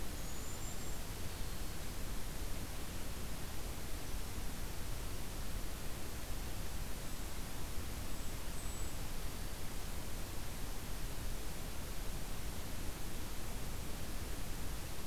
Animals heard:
Golden-crowned Kinglet (Regulus satrapa)

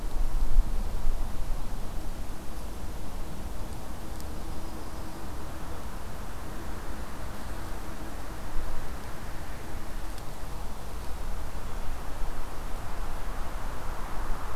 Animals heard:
Yellow-rumped Warbler (Setophaga coronata)

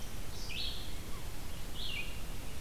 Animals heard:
Red-eyed Vireo (Vireo olivaceus)

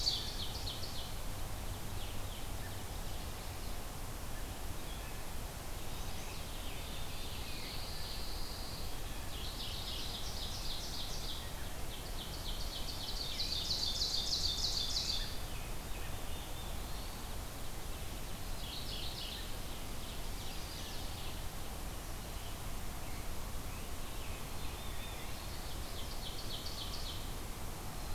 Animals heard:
Black-throated Blue Warbler (Setophaga caerulescens)
Chestnut-sided Warbler (Setophaga pensylvanica)
Pine Warbler (Setophaga pinus)
Ovenbird (Seiurus aurocapilla)
Scarlet Tanager (Piranga olivacea)
Mourning Warbler (Geothlypis philadelphia)

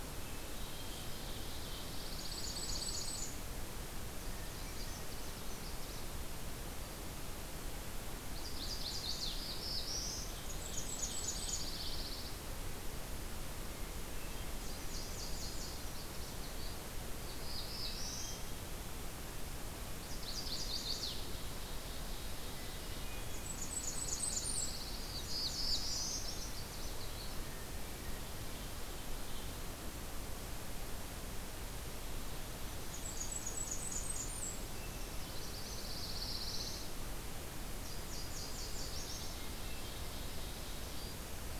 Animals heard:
Magnolia Warbler (Setophaga magnolia)
Canada Warbler (Cardellina canadensis)
Pine Warbler (Setophaga pinus)
Chestnut-sided Warbler (Setophaga pensylvanica)
Nashville Warbler (Leiothlypis ruficapilla)
Ovenbird (Seiurus aurocapilla)
Blackburnian Warbler (Setophaga fusca)
Hermit Thrush (Catharus guttatus)
Black-throated Blue Warbler (Setophaga caerulescens)

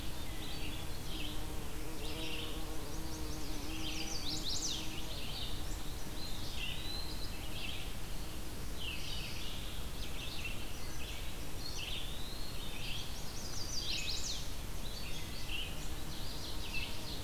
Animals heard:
Ovenbird (Seiurus aurocapilla)
Eastern Wood-Pewee (Contopus virens)
Mourning Warbler (Geothlypis philadelphia)
Chestnut-sided Warbler (Setophaga pensylvanica)
Red-eyed Vireo (Vireo olivaceus)

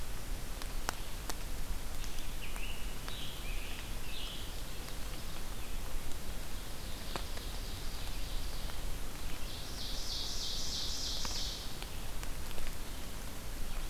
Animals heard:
Red-eyed Vireo (Vireo olivaceus)
Scarlet Tanager (Piranga olivacea)
Ovenbird (Seiurus aurocapilla)

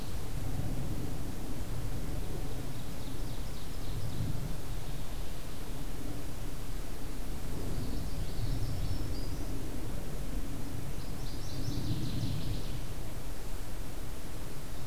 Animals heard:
Common Yellowthroat (Geothlypis trichas)
Northern Waterthrush (Parkesia noveboracensis)
Ovenbird (Seiurus aurocapilla)
Black-throated Green Warbler (Setophaga virens)

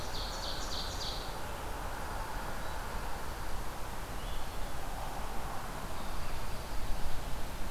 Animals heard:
Black-throated Green Warbler (Setophaga virens)
Ovenbird (Seiurus aurocapilla)
Blue-headed Vireo (Vireo solitarius)
Dark-eyed Junco (Junco hyemalis)

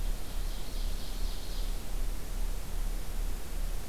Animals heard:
Ovenbird (Seiurus aurocapilla)

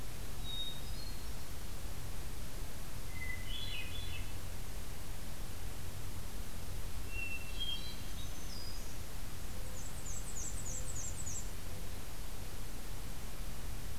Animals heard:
Black-throated Green Warbler (Setophaga virens)
Black-and-white Warbler (Mniotilta varia)
Hermit Thrush (Catharus guttatus)

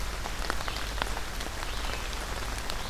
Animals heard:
Red-eyed Vireo (Vireo olivaceus)

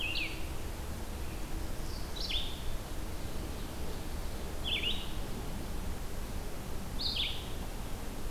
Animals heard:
Blue-headed Vireo (Vireo solitarius)
Ovenbird (Seiurus aurocapilla)

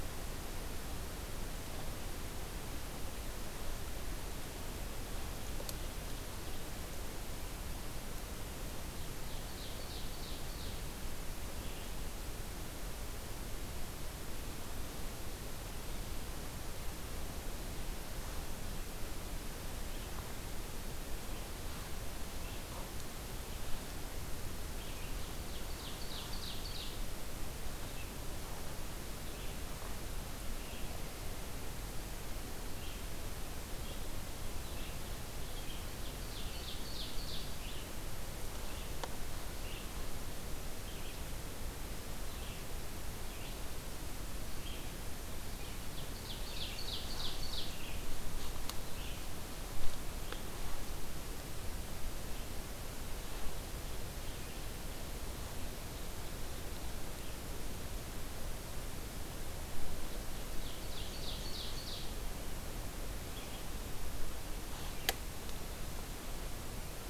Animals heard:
Red-eyed Vireo (Vireo olivaceus)
Ovenbird (Seiurus aurocapilla)

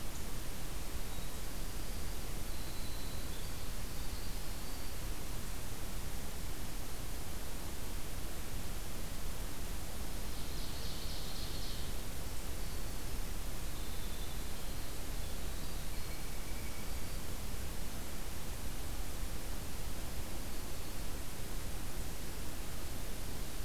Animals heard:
Blue Jay (Cyanocitta cristata)
Ovenbird (Seiurus aurocapilla)
Winter Wren (Troglodytes hiemalis)
Black-throated Green Warbler (Setophaga virens)

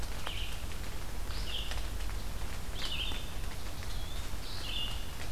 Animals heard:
Red-eyed Vireo (Vireo olivaceus)
Eastern Wood-Pewee (Contopus virens)

